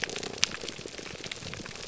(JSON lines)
{"label": "biophony", "recorder": "SoundTrap 300"}